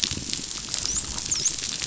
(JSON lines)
{"label": "biophony, dolphin", "recorder": "SoundTrap 500"}